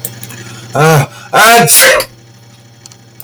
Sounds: Sneeze